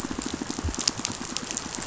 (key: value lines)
label: biophony, pulse
recorder: SoundTrap 500